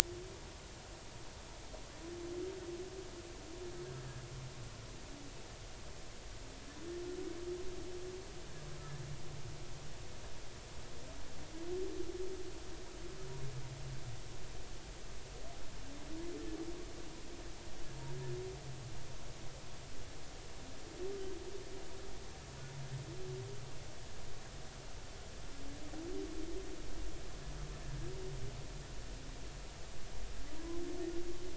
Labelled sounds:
30.6	30.8	humpback whale, 0.93 to 1.1 kHz

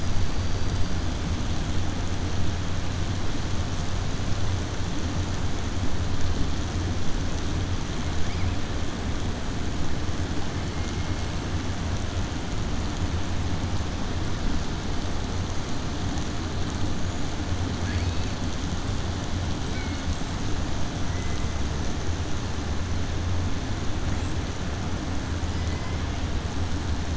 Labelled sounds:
0.3	0.9	killer whale, 4.6 to 4.8 kHz
17.8	18.3	killer whale, 1.6 to 5.1 kHz
19.6	20.0	killer whale, 1.5 to 3.1 kHz

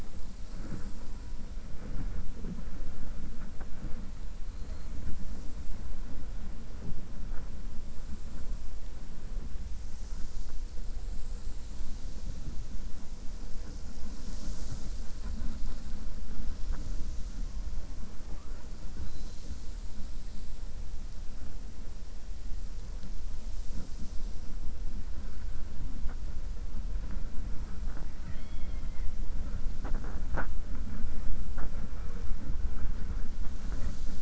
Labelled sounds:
28.1	29.1	killer whale, 1.4 to 4.3 kHz

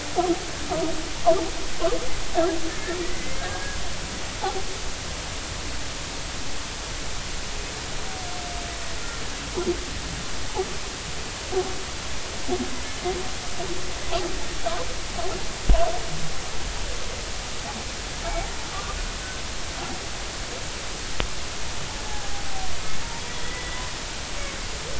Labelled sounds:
3.0	3.4	humpback whale, 1.9 to 2.2 kHz
18.2	19.0	humpback whale, 1.1 to 2.3 kHz
22.1	22.3	humpback whale, 0.80 to 0.90 kHz
23.4	23.9	humpback whale, 1.8 to 2.0 kHz

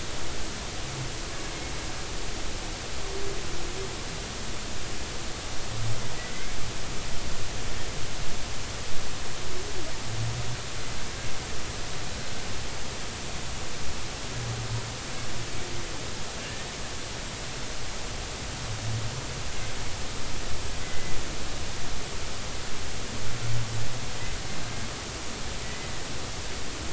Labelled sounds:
16.4	16.7	humpback whale, 1.7 to 1.9 kHz
20.8	21.2	humpback whale, 2.0 to 2.1 kHz
25.6	25.9	humpback whale, 1.9 to 2.1 kHz

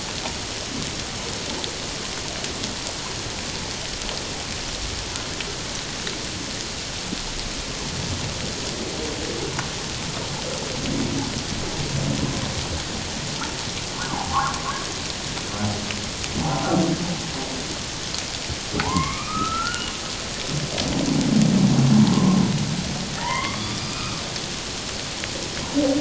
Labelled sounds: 14.1	14.6	humpback whale, 0.78 to 1.7 kHz
16.4	16.7	humpback whale, 0.78 to 1.1 kHz
18.8	19.9	humpback whale, 0.78 to 3.0 kHz
22.1	22.4	humpback whale, 0.97 to 1.1 kHz
23.2	24.2	humpback whale, 0.84 to 3.6 kHz

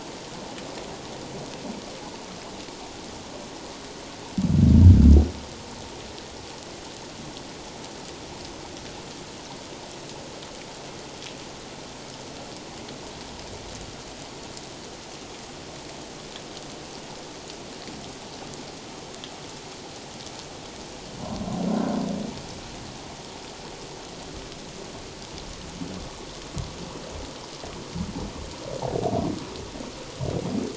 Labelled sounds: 21.7	22.0	humpback whale, 1.3 to 1.6 kHz

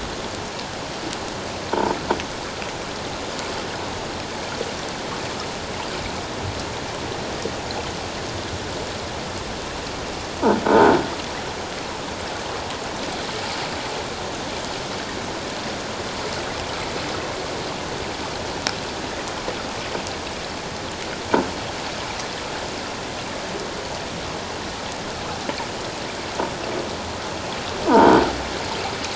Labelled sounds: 10.6	11.0	croaking sound likely from a nearby submerged object, 1.4 to 1.6 kHz

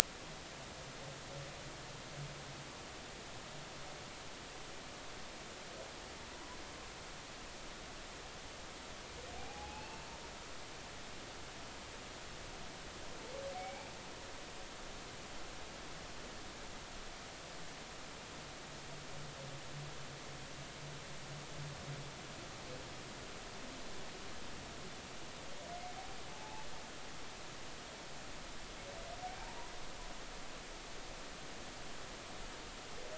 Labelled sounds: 6.3	6.6	humpback whale, 0.96 to 1.1 kHz
9.4	10.0	humpback whale, 0.80 to 2.8 kHz
13.5	13.9	humpback whale, 0.80 to 2.4 kHz
26.3	26.7	humpback whale, 0.83 to 0.93 kHz

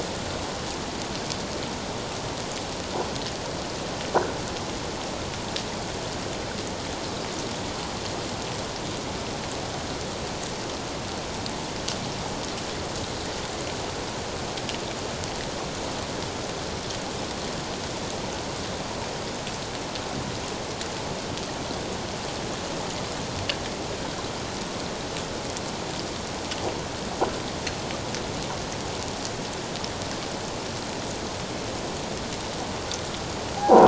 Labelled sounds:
33.6	33.8	croaking sound likely from a nearby submerged object, 0.78 to 1.1 kHz

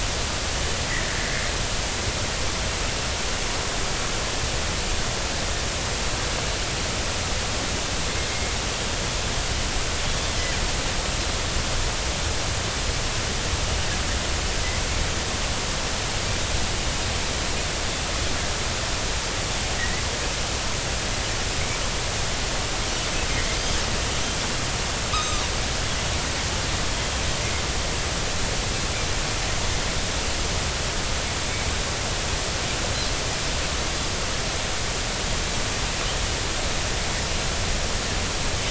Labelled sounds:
19.8	20.0	Pacific white-sided dolphin, 1.8 to 2.2 kHz
25.1	25.5	Pacific white-sided dolphin, 1.1 to 3.9 kHz

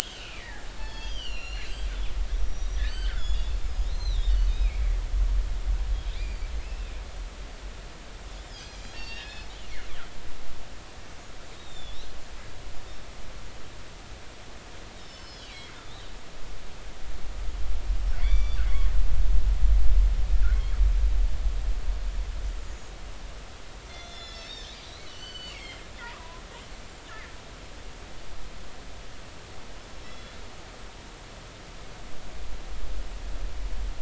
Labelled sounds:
0.0	1.7	killer whale, northern resident, G clan, 0.83 to 7.0 kHz
2.3	3.6	killer whale, northern resident, G clan, 1.3 to 6.9 kHz
3.9	4.9	killer whale, northern resident, G clan, 2.1 to 6.3 kHz
6.6	6.9	killer whale, northern resident, G clan, 2.4 to 2.8 kHz
8.5	9.5	killer whale, northern resident, G clan, 1.6 to 5.6 kHz
11.5	12.2	killer whale, northern resident, G clan, 3.3 to 7.5 kHz
14.9	16.4	killer whale, northern resident, G clan, 2.0 to 5.5 kHz
18.2	18.6	killer whale, northern resident, G clan, GI subclan, call N23i, 1.8 to 5.9 kHz
23.9	26.4	killer whale, northern resident, G clan, 0.86 to 7.3 kHz
27.1	27.3	killer whale, northern resident, G clan, 1.6 to 2.2 kHz
30.1	30.3	killer whale, northern resident, G clan, 3.3 to 3.5 kHz

